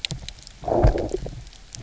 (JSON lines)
{"label": "biophony, low growl", "recorder": "SoundTrap 300"}